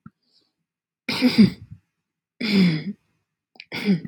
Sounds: Throat clearing